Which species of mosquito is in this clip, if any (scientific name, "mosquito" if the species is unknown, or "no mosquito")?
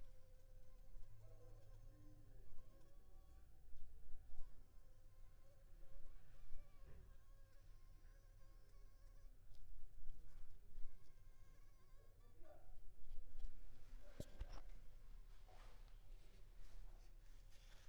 Anopheles funestus s.s.